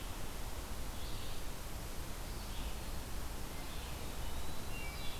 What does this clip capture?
Red-eyed Vireo, Eastern Wood-Pewee